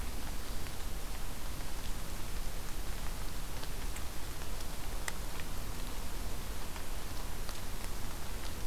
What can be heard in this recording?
Black-throated Green Warbler